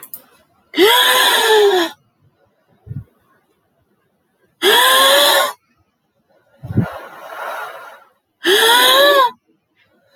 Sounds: Sigh